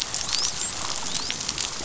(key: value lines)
label: biophony, dolphin
recorder: SoundTrap 500